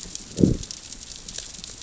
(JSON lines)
{"label": "biophony, growl", "recorder": "SoundTrap 600 or HydroMoth"}